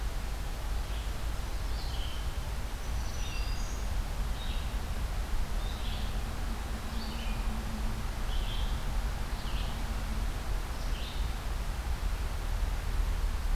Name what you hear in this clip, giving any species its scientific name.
Vireo olivaceus, Setophaga virens